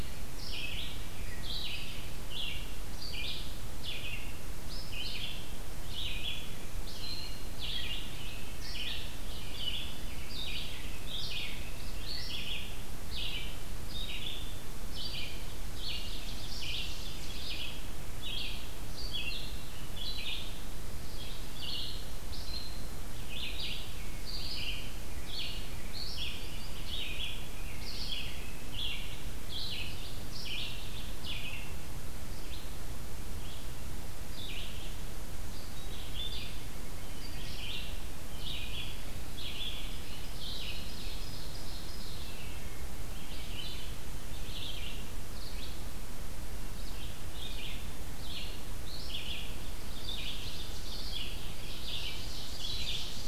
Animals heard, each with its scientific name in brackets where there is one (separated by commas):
Ovenbird (Seiurus aurocapilla), Red-eyed Vireo (Vireo olivaceus)